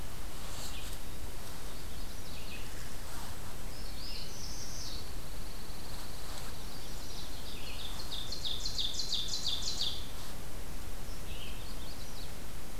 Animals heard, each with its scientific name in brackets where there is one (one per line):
Magnolia Warbler (Setophaga magnolia)
Red-eyed Vireo (Vireo olivaceus)
Pine Warbler (Setophaga pinus)
Ovenbird (Seiurus aurocapilla)
Northern Parula (Setophaga americana)